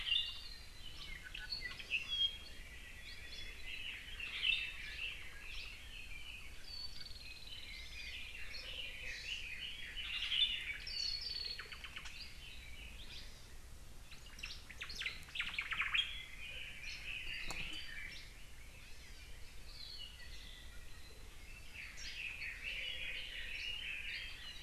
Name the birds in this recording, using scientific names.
Himatione sanguinea, Chlorodrepanis virens, Leiothrix lutea, Loxops mana, Myadestes obscurus